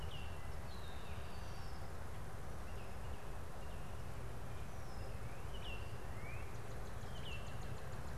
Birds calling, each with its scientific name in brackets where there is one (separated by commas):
Red-winged Blackbird (Agelaius phoeniceus), Baltimore Oriole (Icterus galbula), Northern Cardinal (Cardinalis cardinalis)